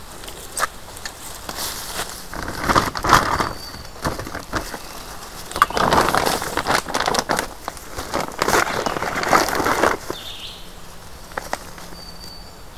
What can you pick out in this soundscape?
Black-throated Green Warbler, Red-eyed Vireo